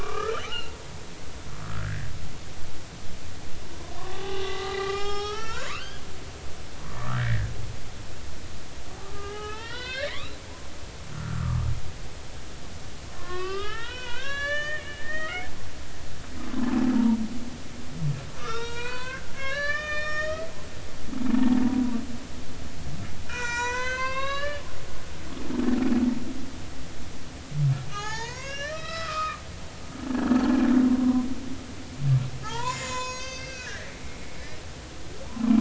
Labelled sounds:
0.0	0.7	humpback whale, 1.1 to 3.1 kHz
1.8	2.1	humpback whale, 1.4 to 2.1 kHz
4.0	6.0	humpback whale, 0.80 to 7.4 kHz
6.8	7.5	humpback whale, 0.93 to 2.0 kHz
9.0	10.4	humpback whale, 0.80 to 4.3 kHz
11.1	11.7	humpback whale, 0.93 to 1.6 kHz
13.1	15.5	humpback whale, 0.80 to 6.7 kHz
17.9	20.5	humpback whale, 0.86 to 6.9 kHz
23.3	24.6	humpback whale, 0.90 to 7.6 kHz
27.9	29.4	humpback whale, 0.80 to 7.2 kHz
31.0	31.2	humpback whale, 0.93 to 1.1 kHz
32.4	34.6	humpback whale, 0.80 to 7.9 kHz

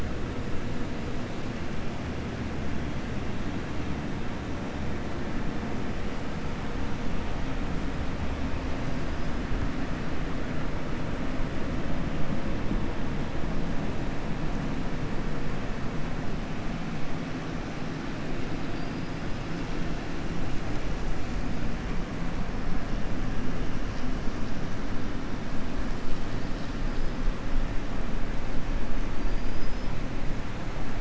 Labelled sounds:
29.1	29.9	killer whale, 4.7 to 5.6 kHz

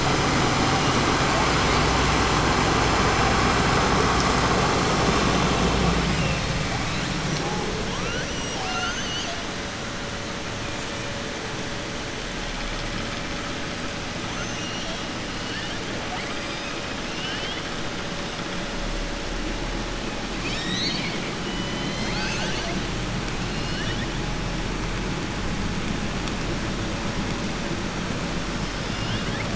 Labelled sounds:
14.3	15.8	killer whale, southern resident, 1.6 to 6.3 kHz
17.1	17.7	killer whale, southern resident, 1.6 to 5.3 kHz
23.5	24.1	killer whale, southern resident, 1.5 to 5.4 kHz
28.5	29.5	killer whale, southern resident, 1.7 to 5.6 kHz

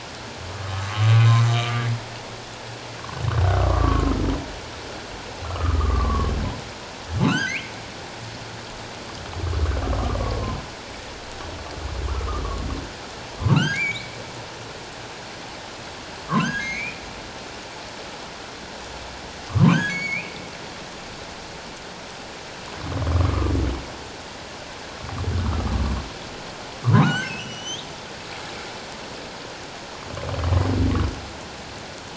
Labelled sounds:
0.7	1.8	humpback whale, 1.0 to 1.3 kHz
3.5	4.1	humpback whale, 0.97 to 1.5 kHz
5.5	6.3	humpback whale, 0.97 to 1.4 kHz
7.2	7.7	humpback whale, 0.97 to 6.6 kHz
10.2	10.6	humpback whale, 0.97 to 1.2 kHz
12.1	12.4	humpback whale, 1.0 to 1.4 kHz
13.5	14.1	humpback whale, 1.2 to 2.5 kHz
16.3	17.0	humpback whale, 0.97 to 6.7 kHz
19.5	20.3	humpback whale, 0.91 to 6.8 kHz
23.1	23.5	humpback whale, 1.0 to 1.3 kHz
26.9	27.9	humpback whale, 0.91 to 6.5 kHz

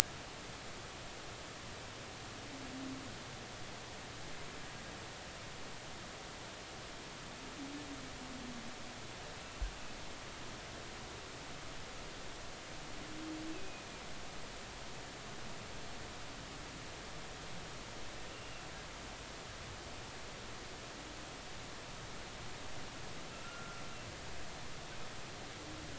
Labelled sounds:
13.5	13.8	humpback whale, 2.4 to 2.7 kHz
18.3	18.6	humpback whale, 2.7 to 2.9 kHz
23.3	23.8	humpback whale, 1.3 to 1.5 kHz

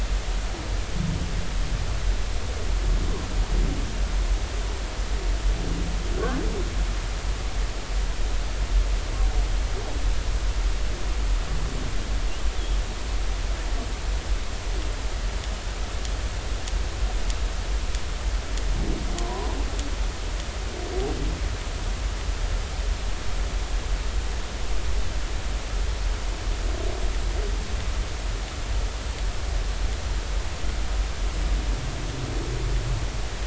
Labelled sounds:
19.2	19.5	humpback whale, 0.93 to 1.1 kHz

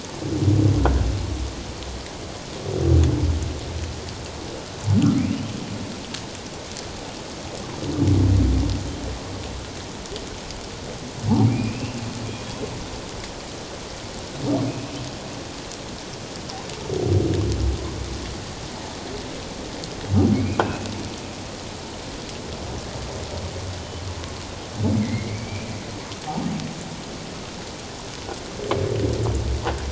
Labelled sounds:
11.5	12.0	humpback whale, 2.1 to 2.8 kHz
20.3	20.6	humpback whale, 2.1 to 2.6 kHz
25.0	25.7	humpback whale, 1.9 to 2.5 kHz

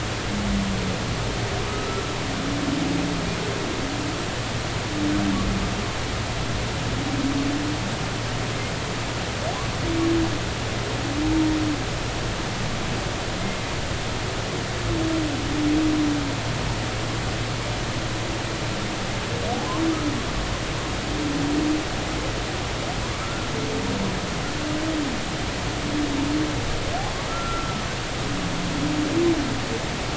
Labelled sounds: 1.7	2.1	humpback whale, 1.2 to 1.4 kHz
23.2	23.5	humpback whale, 1.3 to 1.5 kHz
27.3	27.8	humpback whale, 1.2 to 1.4 kHz

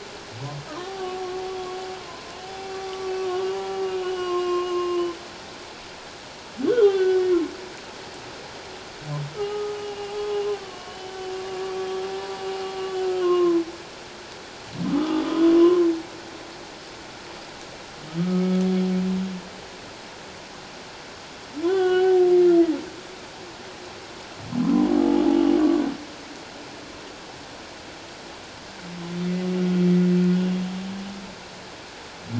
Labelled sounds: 2.7	5.1	humpback whale, 1.0 to 3.0 kHz
6.7	7.2	humpback whale, 1.4 to 3.7 kHz
9.3	10.1	humpback whale, 1.2 to 2.9 kHz
10.6	11.2	humpback whale, 1.1 to 3.1 kHz
13.2	13.6	humpback whale, 0.97 to 1.1 kHz
14.8	15.9	humpback whale, 0.97 to 3.5 kHz
18.2	18.6	humpback whale, 1.2 to 1.3 kHz
21.6	22.2	humpback whale, 0.78 to 3.5 kHz
24.6	25.2	humpback whale, 0.78 to 1.1 kHz

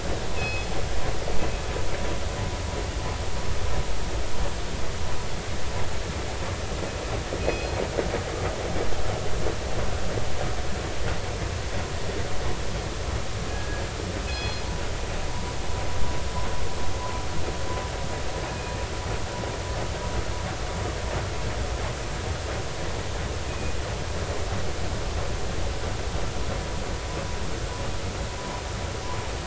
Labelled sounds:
0.4	0.7	killer whale, northern resident, G clan, call N24ii, 2.5 to 5.2 kHz
7.4	7.8	killer whale, northern resident, G clan, call N24ii, 2.5 to 4.3 kHz
13.5	13.8	killer whale, northern resident, G clan, call N24ii, 1.6 to 1.7 kHz
14.3	14.6	killer whale, northern resident, G clan, call N24ii, 2.5 to 4.3 kHz
15.3	15.5	vessel noise, 0.90 to 1.1 kHz
23.5	23.8	killer whale, northern resident, G clan, call N24ii, 2.4 to 2.6 kHz

